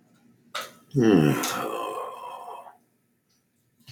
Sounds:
Sigh